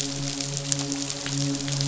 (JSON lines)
{"label": "biophony, midshipman", "recorder": "SoundTrap 500"}